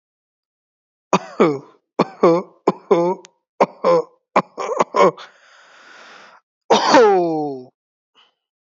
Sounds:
Cough